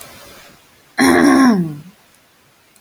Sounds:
Throat clearing